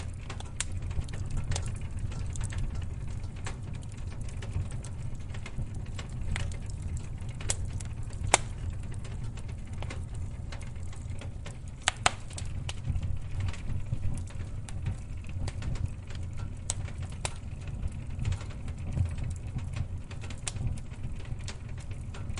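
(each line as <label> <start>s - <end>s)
Flames crackling. 0.0s - 22.4s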